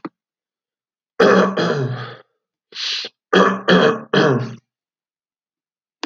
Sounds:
Throat clearing